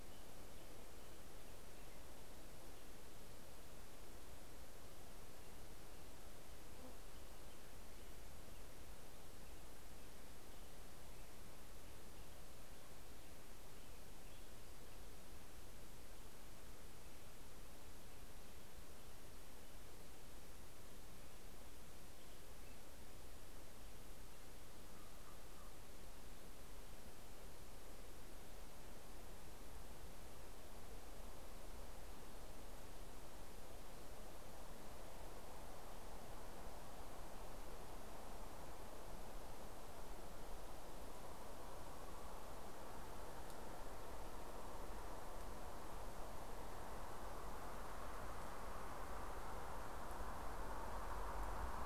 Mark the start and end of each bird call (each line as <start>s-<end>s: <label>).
6.3s-17.0s: Black-headed Grosbeak (Pheucticus melanocephalus)
23.9s-26.4s: Common Raven (Corvus corax)